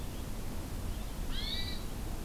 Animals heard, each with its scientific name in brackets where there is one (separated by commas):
Red-eyed Vireo (Vireo olivaceus), Hermit Thrush (Catharus guttatus)